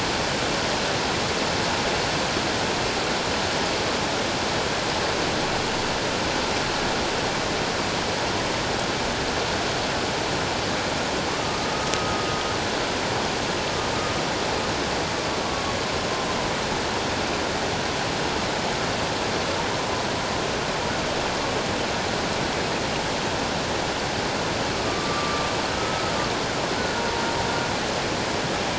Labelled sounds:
11.9	12.2	humpback whale, 1.2 to 1.3 kHz
24.8	26.1	humpback whale, 1.1 to 1.3 kHz
26.8	27.2	humpback whale, 0.91 to 1.6 kHz

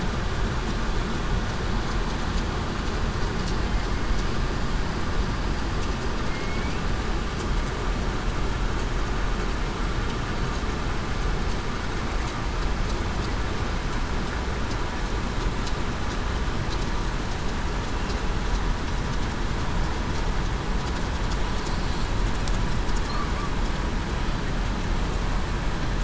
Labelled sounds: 6.3	6.7	killer whale, southern resident, 2.1 to 2.3 kHz

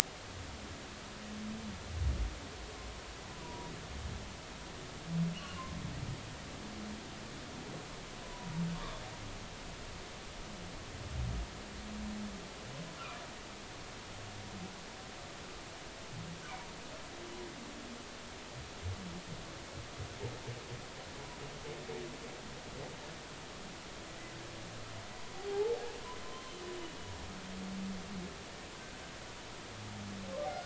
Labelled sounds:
3.3	3.7	humpback whale, 0.90 to 1.0 kHz
5.3	5.8	humpback whale, 0.99 to 3.1 kHz
8.2	9.0	humpback whale, 0.93 to 1.2 kHz
25.3	25.8	humpback whale, 0.80 to 0.93 kHz
26.2	26.5	humpback whale, 0.99 to 1.1 kHz

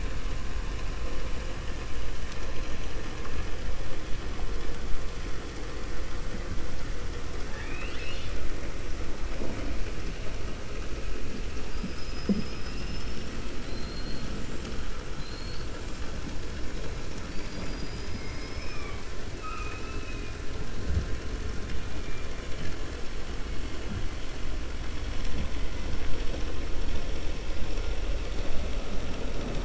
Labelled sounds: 11.6	14.3	killer whale, 2.0 to 6.1 kHz
15.1	15.7	killer whale, 3.7 to 4.8 kHz

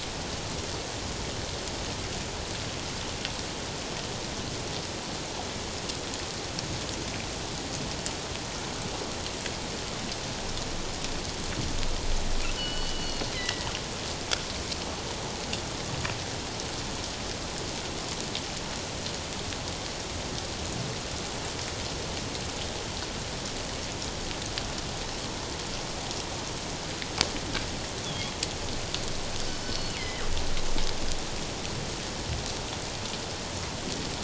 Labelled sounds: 12.6	13.7	killer whale, northern resident, G clan, 1.4 to 4.5 kHz
28.0	28.3	killer whale, northern resident, G clan, 3.2 to 3.6 kHz
29.6	30.2	killer whale, northern resident, G clan, 1.8 to 4.6 kHz

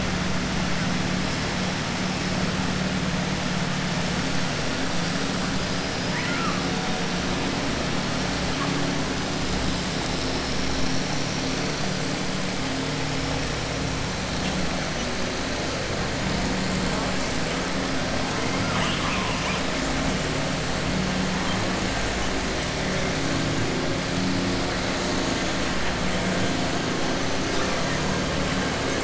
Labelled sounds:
6.0	6.6	killer whale, southern resident, 0.97 to 3.0 kHz
18.6	19.6	killer whale, southern resident, 0.92 to 3.7 kHz

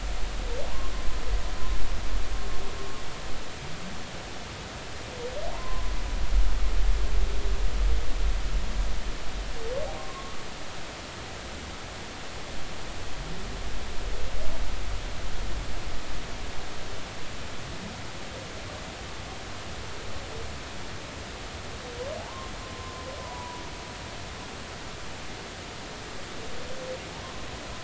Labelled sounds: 5.5	5.9	humpback whale, 0.86 to 1.1 kHz
10.0	10.4	humpback whale, 1.0 to 1.3 kHz
22.2	22.5	humpback whale, 0.80 to 1.1 kHz
23.2	24.1	humpback whale, 0.83 to 1.1 kHz

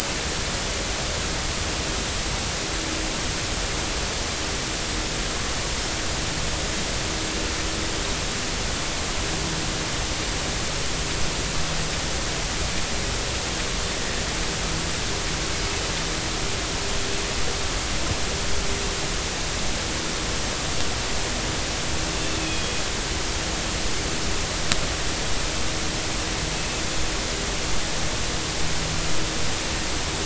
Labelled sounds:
22.4	22.7	Pacific white-sided dolphin, 2.4 to 3.4 kHz
26.6	26.8	Pacific white-sided dolphin, 2.5 to 2.7 kHz

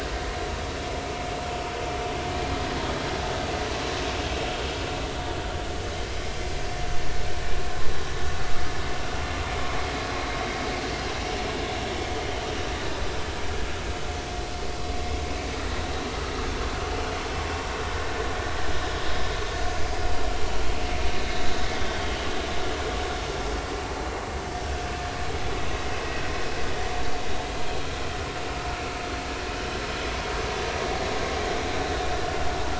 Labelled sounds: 10.2	10.5	vessel noise, 3.8 to 4.0 kHz
11.7	12.0	vessel noise, 5.4 to 5.6 kHz

